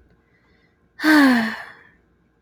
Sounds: Sigh